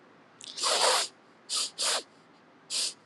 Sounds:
Sniff